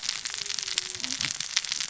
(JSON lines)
{"label": "biophony, cascading saw", "recorder": "SoundTrap 600 or HydroMoth"}